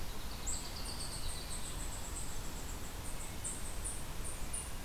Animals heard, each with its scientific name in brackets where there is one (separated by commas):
unknown mammal